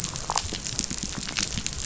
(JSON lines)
{"label": "biophony", "recorder": "SoundTrap 500"}